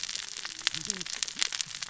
{"label": "biophony, cascading saw", "recorder": "SoundTrap 600 or HydroMoth"}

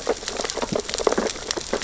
{"label": "biophony, sea urchins (Echinidae)", "recorder": "SoundTrap 600 or HydroMoth"}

